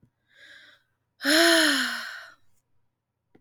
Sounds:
Sigh